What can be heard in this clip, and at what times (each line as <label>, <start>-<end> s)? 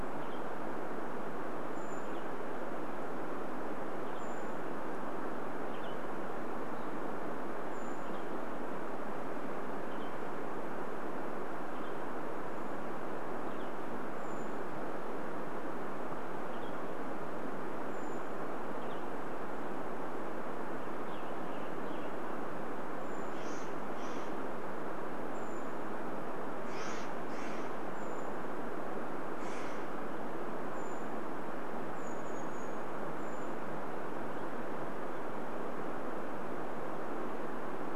Brown Creeper call, 0-10 s
Western Tanager call, 0-14 s
Brown Creeper call, 12-20 s
Western Tanager call, 16-20 s
Western Tanager song, 20-24 s
Brown Creeper call, 22-26 s
Steller's Jay call, 22-30 s
Brown Creeper call, 28-34 s
Western Tanager call, 32-38 s